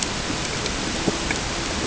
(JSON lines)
{"label": "ambient", "recorder": "HydroMoth"}